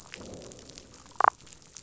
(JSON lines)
{"label": "biophony, growl", "recorder": "SoundTrap 500"}
{"label": "biophony, damselfish", "recorder": "SoundTrap 500"}